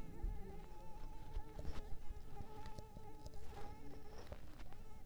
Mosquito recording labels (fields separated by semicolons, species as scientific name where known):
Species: Culex pipiens complex; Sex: female; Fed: unfed; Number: one; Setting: cup